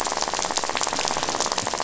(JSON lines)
{"label": "biophony, rattle", "recorder": "SoundTrap 500"}